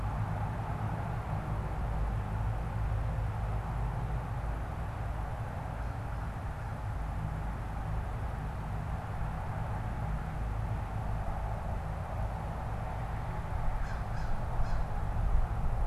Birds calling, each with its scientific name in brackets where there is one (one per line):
American Crow (Corvus brachyrhynchos)